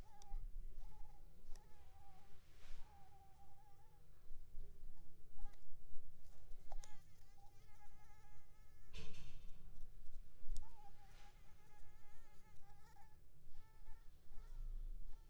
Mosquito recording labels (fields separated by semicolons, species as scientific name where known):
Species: Anopheles squamosus; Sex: female; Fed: blood-fed; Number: one; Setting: cup